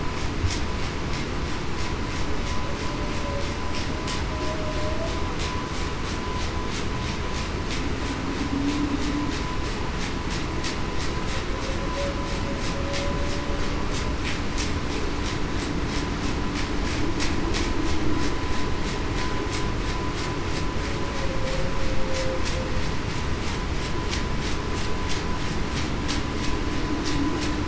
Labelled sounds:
4.3	4.8	humpback whale, 0.58 to 0.66 kHz
8.5	8.9	humpback whale, 0.23 to 0.38 kHz
21.2	21.7	humpback whale, 0.49 to 0.56 kHz

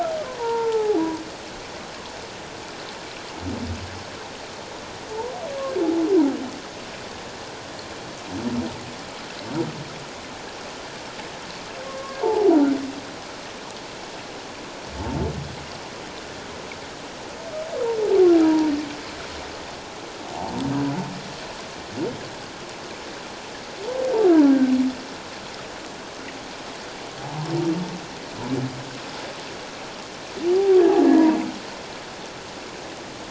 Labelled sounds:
0.4	1.0	humpback whale, 0.78 to 1.4 kHz
11.9	12.8	humpback whale, 0.78 to 1.6 kHz
18.4	18.7	humpback whale, 0.88 to 1.0 kHz
30.9	31.3	humpback whale, 1.7 to 2.0 kHz

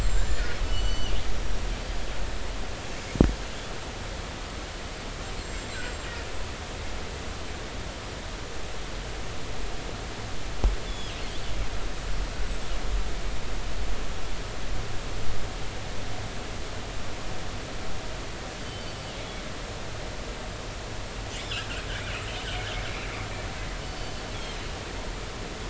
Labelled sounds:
0.0	0.4	killer whale, northern resident, G clan, GI subclan, call N25, 7.1 to 7.6 kHz
0.6	1.1	killer whale, northern resident, G clan, 2.7 to 7.5 kHz
5.4	6.1	killer whale, northern resident, G clan, GI subclan, call N25, 7.3 to 7.7 kHz
10.9	11.1	killer whale, northern resident, G clan, GG subclan, call N28, 3.2 to 5.2 kHz
12.3	12.6	killer whale, northern resident, G clan, GI subclan, call N25, 7.6 to 7.9 kHz
18.6	18.9	killer whale, northern resident, G clan, GG subclan, call N23ii, 3.0 to 3.1 kHz
23.9	24.1	killer whale, northern resident, G clan, GG subclan, call N23ii, 4.4 to 4.7 kHz

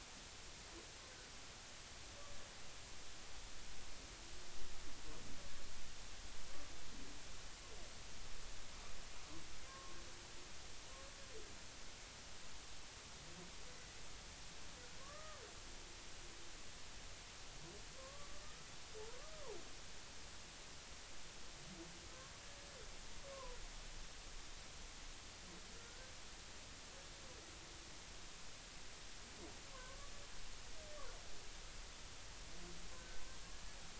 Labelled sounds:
9.7	9.9	humpback whale, 1.0 to 1.1 kHz
15.1	15.4	humpback whale, 1.7 to 1.9 kHz
16.0	16.4	humpback whale, 1.0 to 1.3 kHz
18.0	19.4	humpback whale, 0.83 to 1.3 kHz
23.3	23.6	humpback whale, 0.93 to 1.1 kHz
25.9	26.1	humpback whale, 1.4 to 1.6 kHz
29.7	30.0	humpback whale, 0.96 to 1.1 kHz
33.0	33.2	humpback whale, 1.5 to 1.6 kHz

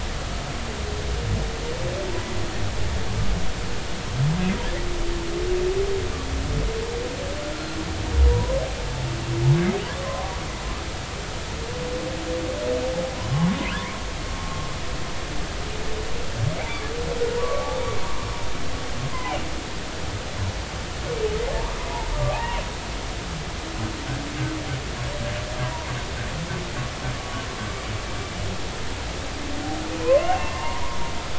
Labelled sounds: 8.3	8.5	humpback whale, 0.90 to 1.1 kHz
10.0	10.3	humpback whale, 0.93 to 1.2 kHz
13.3	13.6	humpback whale, 0.93 to 1.1 kHz
17.4	17.8	humpback whale, 0.93 to 1.2 kHz
19.1	19.4	humpback whale, 0.80 to 1.1 kHz
22.3	22.6	humpback whale, 0.80 to 1.0 kHz
25.6	25.9	humpback whale, 0.90 to 1.2 kHz
27.2	27.5	humpback whale, 1.0 to 1.2 kHz
30.0	31.0	humpback whale, 0.86 to 2.8 kHz

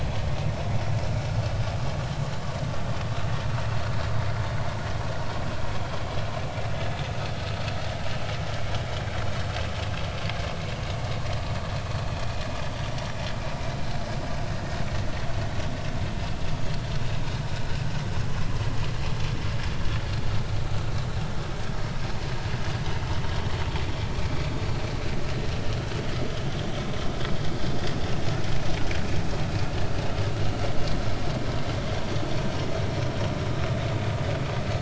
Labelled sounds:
24.2	24.4	vessel noise, 2.2 to 2.5 kHz

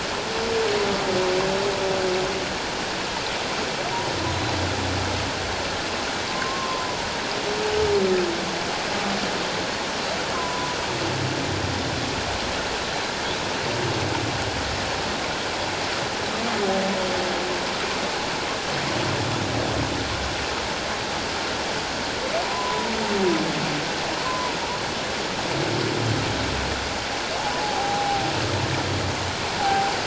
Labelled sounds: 6.3	7.0	humpback whale, 0.91 to 1.2 kHz
10.3	10.8	humpback whale, 0.94 to 1.1 kHz
22.4	22.9	humpback whale, 0.91 to 1.1 kHz
24.2	24.6	humpback whale, 0.91 to 1.1 kHz
27.6	28.3	humpback whale, 0.78 to 0.91 kHz
29.6	29.9	humpback whale, 0.78 to 0.88 kHz

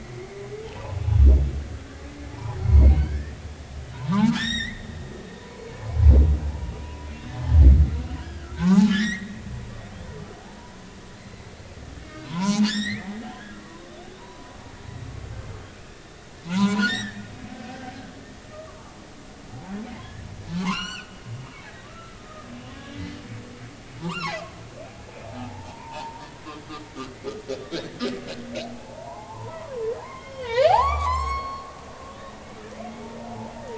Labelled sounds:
0.6	1.0	humpback whale, 0.80 to 1.1 kHz
2.3	3.4	humpback whale, 0.80 to 4.4 kHz
3.9	4.8	humpback whale, 0.80 to 7.6 kHz
5.4	5.6	humpback whale, 0.93 to 1.1 kHz
6.8	7.5	humpback whale, 0.93 to 3.2 kHz
8.2	9.3	humpback whale, 0.80 to 6.4 kHz
11.1	14.5	humpback whale, 0.83 to 7.9 kHz
16.5	17.9	humpback whale, 0.83 to 7.8 kHz
18.5	19.0	humpback whale, 0.83 to 1.3 kHz
20.6	21.1	humpback whale, 0.80 to 7.6 kHz
21.8	22.5	humpback whale, 1.1 to 1.4 kHz
24.0	24.4	humpback whale, 0.80 to 4.3 kHz
25.3	26.3	humpback whale, 0.80 to 1.1 kHz
27.5	28.0	humpback whale, 3.4 to 3.8 kHz
28.6	31.7	humpback whale, 0.80 to 7.7 kHz
32.1	32.4	humpback whale, 3.5 to 3.8 kHz

